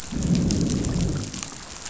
{"label": "biophony, growl", "recorder": "SoundTrap 500"}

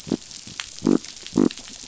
{"label": "biophony", "recorder": "SoundTrap 500"}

